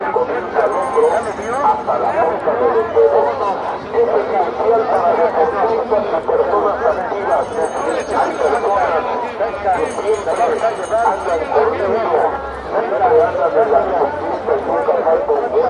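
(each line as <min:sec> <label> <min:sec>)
0:00.0 A man speaking Spanish into a microphone to a crowd outdoors. 0:15.7
0:00.5 Multiple people are talking loudly at the same time outdoors. 0:15.7
0:01.2 A bell rings rhythmically outdoors. 0:01.9
0:07.5 A bell rings rhythmically outdoors. 0:08.8
0:09.4 A bell rings rhythmically with pauses in between. 0:12.0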